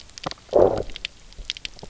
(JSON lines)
{"label": "biophony, low growl", "recorder": "SoundTrap 300"}